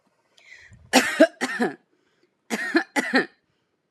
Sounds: Cough